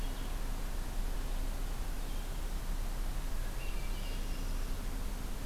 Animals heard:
Hermit Thrush (Catharus guttatus)
Blue-headed Vireo (Vireo solitarius)
Northern Parula (Setophaga americana)

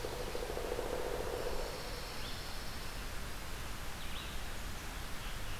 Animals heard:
Pine Warbler (Setophaga pinus)
Red-eyed Vireo (Vireo olivaceus)
Pileated Woodpecker (Dryocopus pileatus)

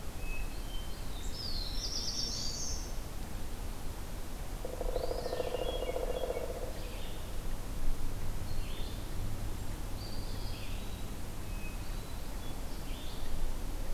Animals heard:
Black-throated Blue Warbler (Setophaga caerulescens)
Pileated Woodpecker (Dryocopus pileatus)
Eastern Wood-Pewee (Contopus virens)
Hermit Thrush (Catharus guttatus)
Red-eyed Vireo (Vireo olivaceus)

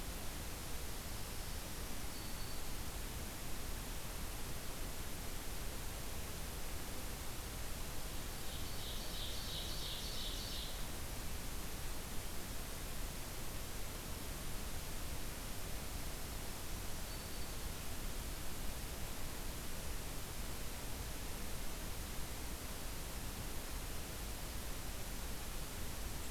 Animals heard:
Black-throated Green Warbler (Setophaga virens)
Ovenbird (Seiurus aurocapilla)

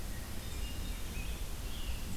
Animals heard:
Hermit Thrush (Catharus guttatus)
Scarlet Tanager (Piranga olivacea)

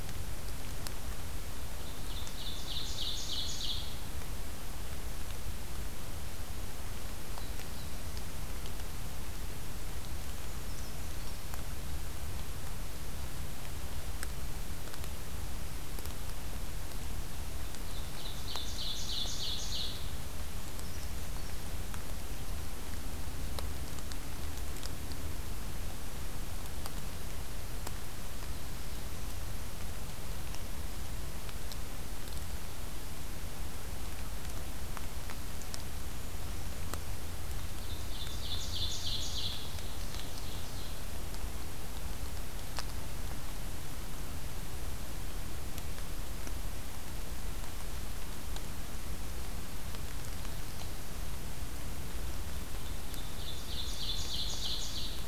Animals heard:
Brown Creeper (Certhia americana)
Ovenbird (Seiurus aurocapilla)
Black-throated Blue Warbler (Setophaga caerulescens)

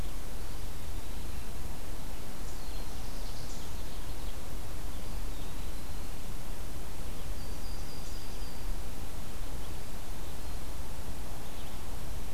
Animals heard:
Ovenbird (Seiurus aurocapilla)
Yellow-rumped Warbler (Setophaga coronata)
Black-throated Blue Warbler (Setophaga caerulescens)
Eastern Wood-Pewee (Contopus virens)

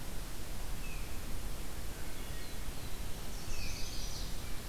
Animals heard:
Tufted Titmouse (Baeolophus bicolor)
Wood Thrush (Hylocichla mustelina)
Chestnut-sided Warbler (Setophaga pensylvanica)

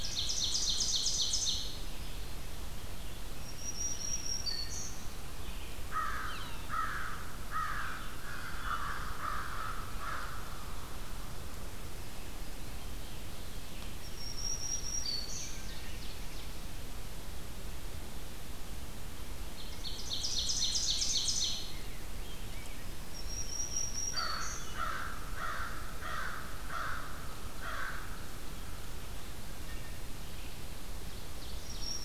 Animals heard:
Wood Thrush (Hylocichla mustelina)
Black-throated Green Warbler (Setophaga virens)
Red-eyed Vireo (Vireo olivaceus)
Rose-breasted Grosbeak (Pheucticus ludovicianus)
American Crow (Corvus brachyrhynchos)
Yellow-bellied Sapsucker (Sphyrapicus varius)
Ovenbird (Seiurus aurocapilla)

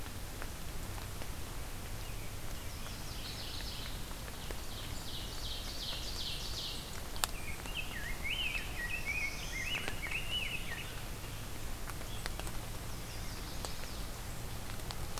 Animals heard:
Black-throated Blue Warbler (Setophaga caerulescens)
Ovenbird (Seiurus aurocapilla)
Chestnut-sided Warbler (Setophaga pensylvanica)
Rose-breasted Grosbeak (Pheucticus ludovicianus)
Mourning Warbler (Geothlypis philadelphia)

